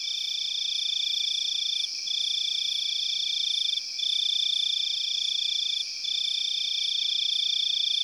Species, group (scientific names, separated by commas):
Teleogryllus mitratus, Orthoptera